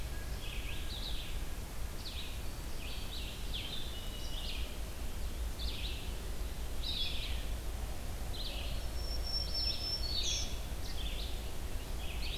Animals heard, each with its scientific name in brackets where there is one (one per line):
Black-throated Green Warbler (Setophaga virens)
Song Sparrow (Melospiza melodia)
Blue Jay (Cyanocitta cristata)
Blue-headed Vireo (Vireo solitarius)
Red-eyed Vireo (Vireo olivaceus)